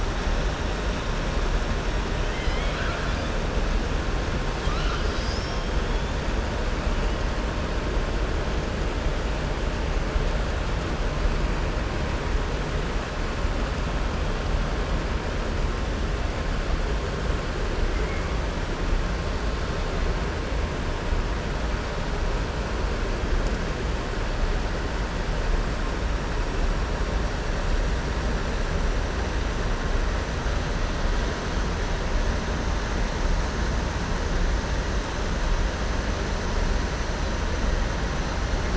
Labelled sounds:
2.2	3.2	killer whale, southern resident, 1.1 to 5.1 kHz

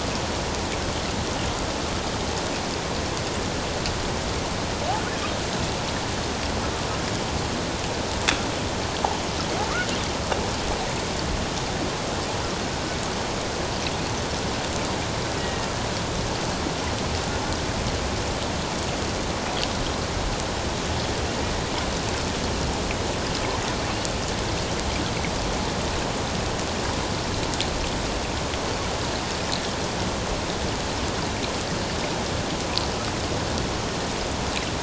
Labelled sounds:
15.4	15.7	killer whale, offshore, 1.8 to 2.0 kHz

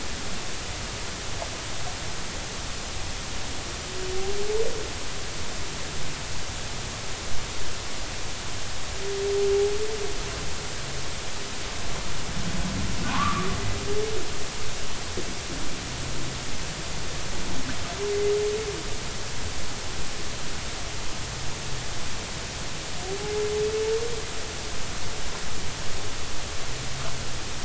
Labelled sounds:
13.0	13.5	humpback whale, 0.90 to 1.5 kHz

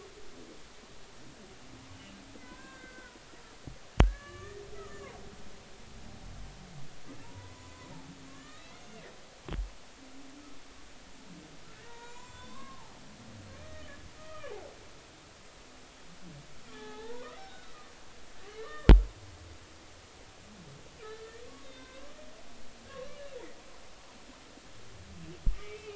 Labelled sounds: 2.4	3.2	humpback whale, 0.96 to 2.1 kHz
4.0	5.0	humpback whale, 1.1 to 6.6 kHz
7.2	7.9	humpback whale, 0.86 to 1.1 kHz
8.3	8.8	humpback whale, 1.7 to 4.0 kHz
11.7	12.9	humpback whale, 0.80 to 7.5 kHz
13.6	14.5	humpback whale, 1.1 to 3.2 kHz
16.7	17.7	humpback whale, 0.80 to 4.0 kHz
18.6	18.9	humpback whale, 1.0 to 1.9 kHz
21.0	22.1	humpback whale, 1.2 to 4.2 kHz
25.6	25.9	humpback whale, 2.2 to 2.4 kHz

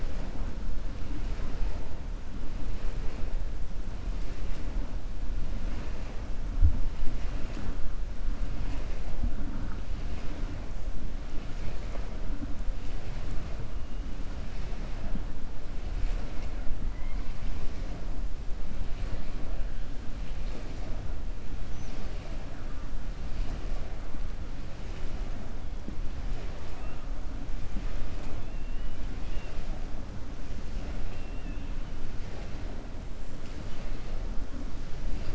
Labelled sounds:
30.8	31.6	killer whale, 1.4 to 3.5 kHz

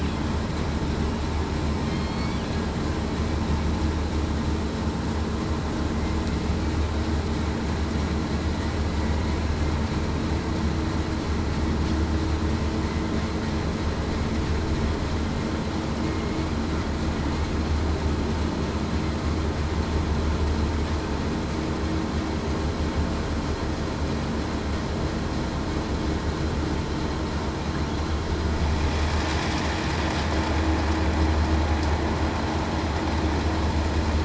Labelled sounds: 1.8	2.2	killer whale, southern resident, 3.1 to 3.3 kHz
16.0	16.4	killer whale, southern resident, 2.1 to 2.2 kHz

